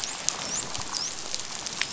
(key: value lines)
label: biophony, dolphin
recorder: SoundTrap 500